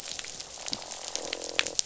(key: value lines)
label: biophony, croak
recorder: SoundTrap 500